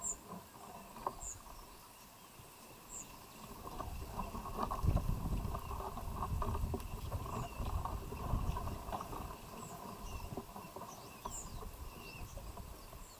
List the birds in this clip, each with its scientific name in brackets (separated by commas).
Kikuyu White-eye (Zosterops kikuyuensis), White-eyed Slaty-Flycatcher (Melaenornis fischeri)